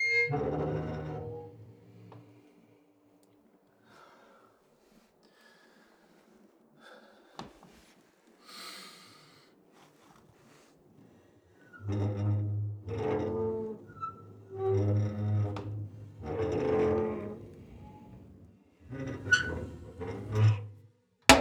Is someone breathing heavily in the background?
yes